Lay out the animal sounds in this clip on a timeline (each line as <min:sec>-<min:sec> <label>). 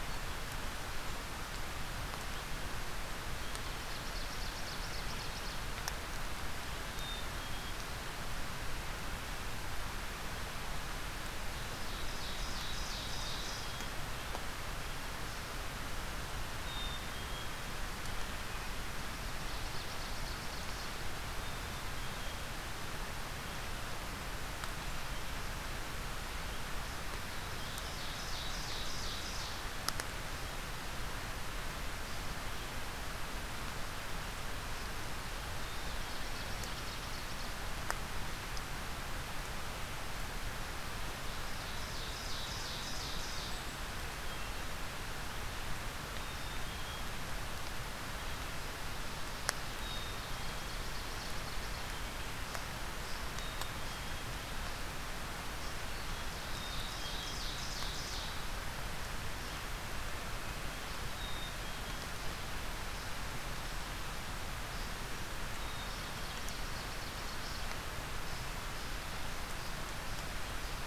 0:03.6-0:05.7 Ovenbird (Seiurus aurocapilla)
0:06.8-0:08.0 Black-capped Chickadee (Poecile atricapillus)
0:11.5-0:13.8 Ovenbird (Seiurus aurocapilla)
0:12.9-0:14.0 Black-capped Chickadee (Poecile atricapillus)
0:16.6-0:17.6 Black-capped Chickadee (Poecile atricapillus)
0:19.2-0:21.4 Ovenbird (Seiurus aurocapilla)
0:21.2-0:22.6 Black-capped Chickadee (Poecile atricapillus)
0:27.5-0:29.6 Ovenbird (Seiurus aurocapilla)
0:35.5-0:36.7 Black-capped Chickadee (Poecile atricapillus)
0:36.0-0:37.6 Ovenbird (Seiurus aurocapilla)
0:41.2-0:43.6 Ovenbird (Seiurus aurocapilla)
0:46.1-0:47.1 Black-capped Chickadee (Poecile atricapillus)
0:49.8-0:50.8 Black-capped Chickadee (Poecile atricapillus)
0:49.9-0:51.9 Ovenbird (Seiurus aurocapilla)
0:53.1-0:54.4 Black-capped Chickadee (Poecile atricapillus)
0:55.8-0:58.5 Ovenbird (Seiurus aurocapilla)
0:56.4-0:57.6 Black-capped Chickadee (Poecile atricapillus)
1:01.0-1:02.1 Black-capped Chickadee (Poecile atricapillus)
1:05.4-1:06.6 Black-capped Chickadee (Poecile atricapillus)
1:05.7-1:07.7 Ovenbird (Seiurus aurocapilla)